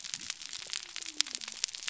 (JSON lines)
{"label": "biophony", "recorder": "SoundTrap 300"}